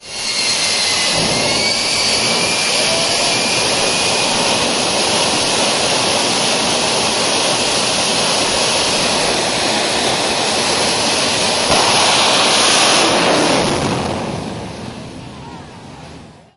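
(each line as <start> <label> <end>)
0.0 An engine sounds almost like white noise. 16.6
1.0 An engine boosts rapidly. 2.8
11.7 An engine boosts rapidly. 14.7
14.8 A muffled crowd can be heard in the background. 16.6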